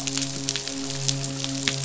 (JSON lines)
{"label": "biophony, midshipman", "recorder": "SoundTrap 500"}